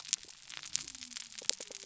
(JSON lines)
{"label": "biophony", "recorder": "SoundTrap 300"}